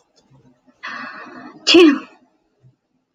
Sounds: Sneeze